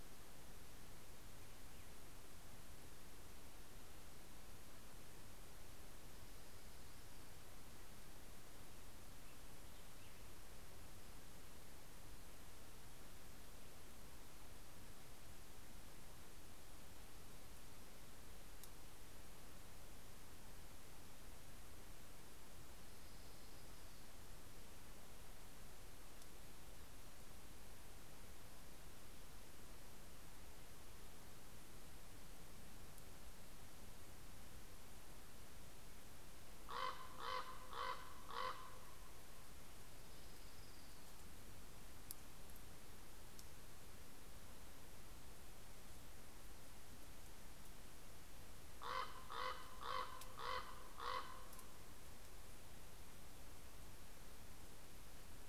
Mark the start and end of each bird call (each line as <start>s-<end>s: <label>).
22.2s-24.9s: Orange-crowned Warbler (Leiothlypis celata)
36.3s-39.6s: Common Raven (Corvus corax)
39.7s-41.5s: Orange-crowned Warbler (Leiothlypis celata)
48.5s-52.0s: Common Raven (Corvus corax)